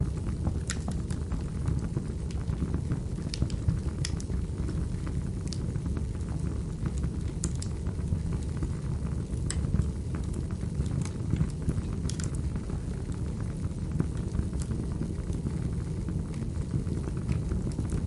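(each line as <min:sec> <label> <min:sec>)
0:00.1 Crackling sounds of fire and burning materials with occasional pops continue steadily, featuring instant pops and louder crackles over time. 0:18.1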